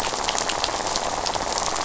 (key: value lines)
label: biophony, rattle
recorder: SoundTrap 500